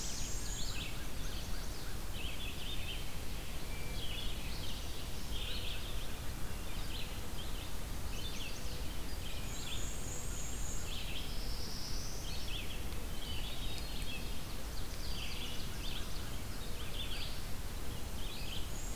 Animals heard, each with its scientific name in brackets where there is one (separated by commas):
Black-throated Blue Warbler (Setophaga caerulescens), Chestnut-sided Warbler (Setophaga pensylvanica), Hermit Thrush (Catharus guttatus), Black-and-white Warbler (Mniotilta varia), Ovenbird (Seiurus aurocapilla), Red-eyed Vireo (Vireo olivaceus)